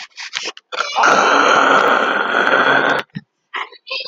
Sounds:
Throat clearing